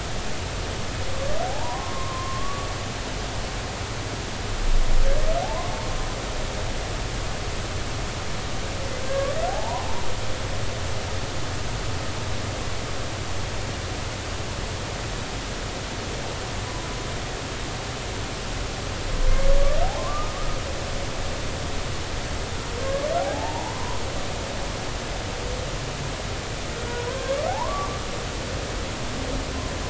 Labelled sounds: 1.4	2.7	humpback whale, 0.80 to 1.2 kHz
5.4	5.7	humpback whale, 0.80 to 1.2 kHz
9.0	10.0	humpback whale, 0.80 to 1.7 kHz
20.0	20.3	humpback whale, 0.99 to 1.3 kHz
22.8	24.0	humpback whale, 0.80 to 1.7 kHz
26.8	28.0	humpback whale, 0.80 to 1.7 kHz

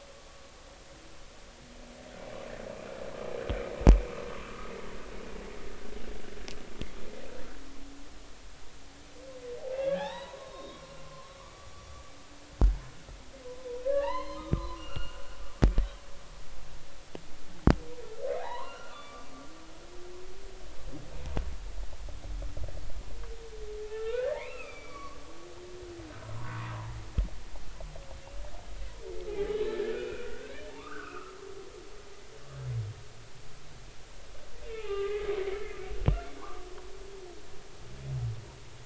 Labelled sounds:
4.4	4.7	humpback whale, 1.1 to 1.4 kHz
9.8	11.7	humpback whale, 0.80 to 4.1 kHz
13.8	15.2	humpback whale, 0.80 to 4.3 kHz
18.4	19.3	humpback whale, 0.80 to 4.7 kHz
23.9	25.2	humpback whale, 0.80 to 4.8 kHz
29.3	30.3	humpback whale, 0.80 to 2.6 kHz
30.7	31.6	humpback whale, 1.0 to 1.9 kHz
34.6	35.8	humpback whale, 0.80 to 3.7 kHz
36.4	36.7	humpback whale, 0.90 to 1.3 kHz

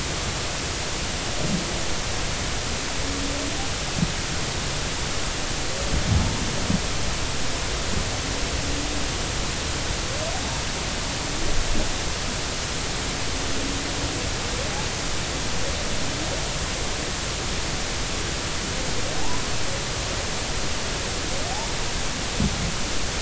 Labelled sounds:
19.2	19.5	humpback whale, 0.80 to 1.1 kHz

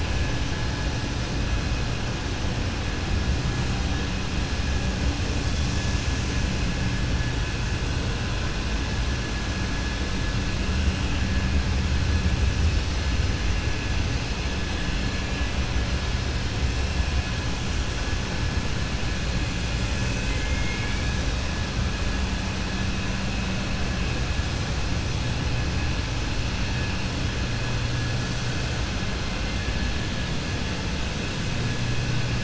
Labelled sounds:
20.2	21.0	killer whale, 1.7 to 3.2 kHz

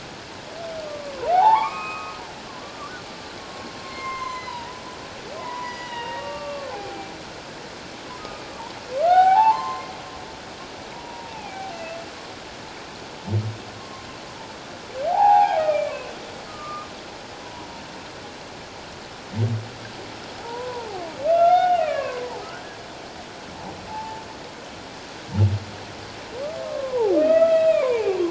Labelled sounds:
0.9	2.2	humpback whale, 0.78 to 2.6 kHz
3.8	4.8	humpback whale, 0.84 to 6.4 kHz
5.4	7.1	humpback whale, 0.78 to 6.0 kHz
8.2	9.9	humpback whale, 0.78 to 6.4 kHz
10.9	12.0	humpback whale, 0.78 to 2.8 kHz
13.8	14.1	humpback whale, 1.0 to 1.2 kHz
15.1	16.1	humpback whale, 0.78 to 2.7 kHz
16.5	16.9	humpback whale, 1.1 to 1.3 kHz
20.4	21.0	humpback whale, 0.78 to 1.1 kHz
21.3	22.8	humpback whale, 0.78 to 3.7 kHz
23.9	24.2	humpback whale, 0.81 to 0.94 kHz
26.6	28.2	humpback whale, 0.78 to 3.9 kHz

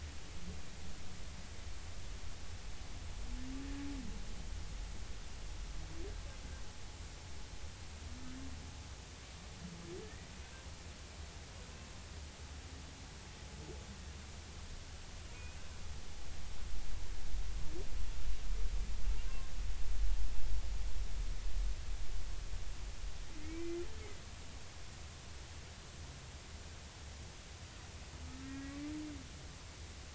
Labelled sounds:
10.0	10.3	humpback whale, 1.7 to 2.0 kHz
23.4	23.8	humpback whale, 2.0 to 2.4 kHz
28.2	28.8	humpback whale, 1.2 to 2.0 kHz

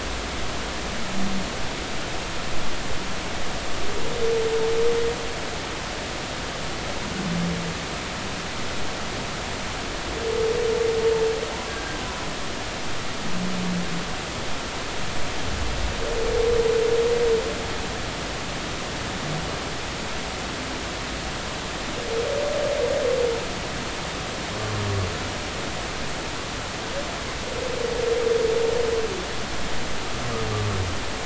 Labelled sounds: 11.7	12.0	humpback whale, 1.5 to 1.7 kHz

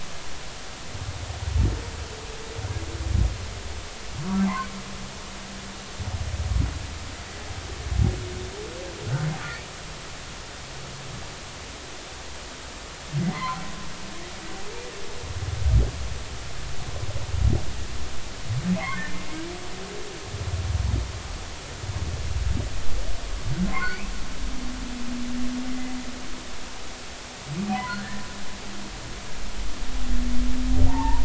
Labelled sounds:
13.2	13.6	humpback whale, 0.96 to 2.3 kHz
18.8	19.0	humpback whale, 1.9 to 2.2 kHz
23.7	24.1	humpback whale, 0.99 to 2.7 kHz
27.7	28.2	humpback whale, 0.93 to 1.9 kHz
30.9	31.2	humpback whale, 0.83 to 1.2 kHz

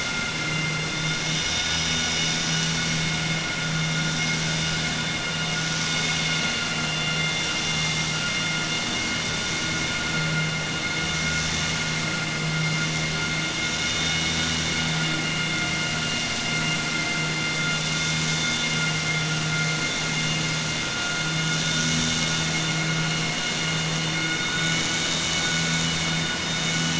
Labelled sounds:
0.1	0.8	vessel noise, 1.4 to 3.5 kHz

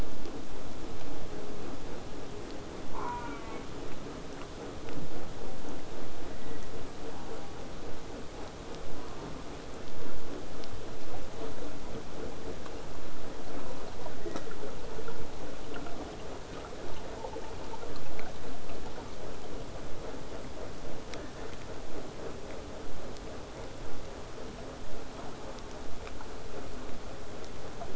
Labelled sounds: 2.9	3.7	killer whale, southern resident, J pod, call S04, 0.24 to 4.0 kHz
7.0	7.5	killer whale, southern resident, J pod, call S04, 0.40 to 1.6 kHz
8.9	9.5	killer whale, southern resident, J pod, call S04, 0.36 to 1.5 kHz

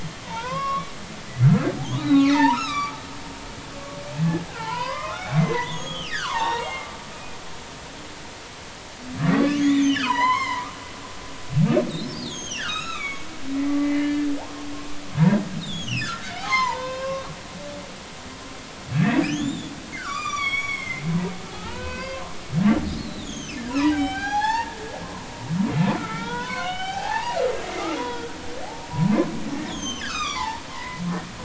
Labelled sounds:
0.2	3.0	humpback whale, 0.80 to 5.9 kHz
4.5	7.4	humpback whale, 0.80 to 6.8 kHz
9.3	10.7	humpback whale, 0.80 to 5.6 kHz
12.2	13.3	humpback whale, 1.1 to 8.0 kHz
13.8	14.3	humpback whale, 1.7 to 3.0 kHz
15.6	17.3	humpback whale, 0.80 to 6.8 kHz
18.9	21.0	humpback whale, 0.99 to 7.9 kHz
21.5	25.3	humpback whale, 0.80 to 6.8 kHz
26.0	27.4	humpback whale, 0.80 to 3.8 kHz
28.0	28.3	humpback whale, 3.2 to 3.5 kHz
29.7	31.0	humpback whale, 0.80 to 6.9 kHz

